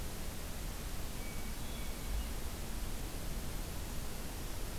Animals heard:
Hermit Thrush (Catharus guttatus)

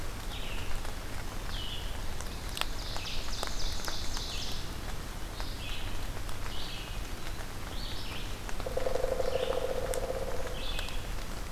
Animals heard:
Ovenbird (Seiurus aurocapilla)
Red-eyed Vireo (Vireo olivaceus)
Pileated Woodpecker (Dryocopus pileatus)

